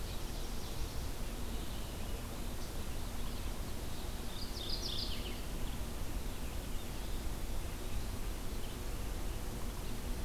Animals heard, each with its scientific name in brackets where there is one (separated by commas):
Mourning Warbler (Geothlypis philadelphia), Ovenbird (Seiurus aurocapilla), Red-eyed Vireo (Vireo olivaceus)